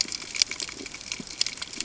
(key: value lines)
label: ambient
recorder: HydroMoth